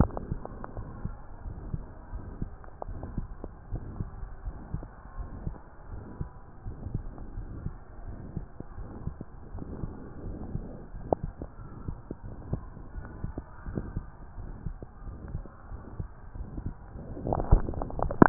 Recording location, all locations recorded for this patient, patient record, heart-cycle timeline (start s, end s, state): aortic valve (AV)
aortic valve (AV)+pulmonary valve (PV)+tricuspid valve (TV)+mitral valve (MV)
#Age: Adolescent
#Sex: Male
#Height: 151.0 cm
#Weight: 53.6 kg
#Pregnancy status: False
#Murmur: Present
#Murmur locations: aortic valve (AV)+mitral valve (MV)+pulmonary valve (PV)+tricuspid valve (TV)
#Most audible location: pulmonary valve (PV)
#Systolic murmur timing: Holosystolic
#Systolic murmur shape: Plateau
#Systolic murmur grading: III/VI or higher
#Systolic murmur pitch: Medium
#Systolic murmur quality: Blowing
#Diastolic murmur timing: nan
#Diastolic murmur shape: nan
#Diastolic murmur grading: nan
#Diastolic murmur pitch: nan
#Diastolic murmur quality: nan
#Outcome: Abnormal
#Campaign: 2015 screening campaign
0.00	1.04	unannotated
1.04	1.14	S2
1.14	1.44	diastole
1.44	1.56	S1
1.56	1.66	systole
1.66	1.82	S2
1.82	2.14	diastole
2.14	2.26	S1
2.26	2.38	systole
2.38	2.48	S2
2.48	2.86	diastole
2.86	3.00	S1
3.00	3.12	systole
3.12	3.28	S2
3.28	3.70	diastole
3.70	3.84	S1
3.84	3.98	systole
3.98	4.10	S2
4.10	4.42	diastole
4.42	4.56	S1
4.56	4.72	systole
4.72	4.84	S2
4.84	5.18	diastole
5.18	5.30	S1
5.30	5.42	systole
5.42	5.56	S2
5.56	5.92	diastole
5.92	6.04	S1
6.04	6.18	systole
6.18	6.30	S2
6.30	6.66	diastole
6.66	6.76	S1
6.76	6.92	systole
6.92	7.06	S2
7.06	7.36	diastole
7.36	7.50	S1
7.50	7.64	systole
7.64	7.76	S2
7.76	8.06	diastole
8.06	8.18	S1
8.18	8.34	systole
8.34	8.46	S2
8.46	8.78	diastole
8.78	8.88	S1
8.88	9.04	systole
9.04	9.16	S2
9.16	9.54	diastole
9.54	9.68	S1
9.68	9.80	systole
9.80	9.92	S2
9.92	10.24	diastole
10.24	10.40	S1
10.40	10.52	systole
10.52	10.66	S2
10.66	10.96	diastole
10.96	11.08	S1
11.08	11.24	systole
11.24	11.34	S2
11.34	11.66	diastole
11.66	11.72	S1
11.72	11.84	systole
11.84	11.98	S2
11.98	12.28	diastole
12.28	12.36	S1
12.36	12.50	systole
12.50	12.64	S2
12.64	12.94	diastole
12.94	13.06	S1
13.06	13.22	systole
13.22	13.36	S2
13.36	13.65	diastole
13.65	13.80	S1
13.80	13.94	systole
13.94	14.04	S2
14.04	14.38	diastole
14.38	14.50	S1
14.50	14.64	systole
14.64	14.76	S2
14.76	15.06	diastole
15.06	15.18	S1
15.18	15.32	systole
15.32	15.46	S2
15.46	15.74	diastole
15.74	15.82	S1
15.82	15.98	systole
15.98	16.06	S2
16.06	16.36	diastole
16.36	16.50	S1
16.50	16.66	systole
16.66	16.80	S2
16.80	16.88	diastole
16.88	18.29	unannotated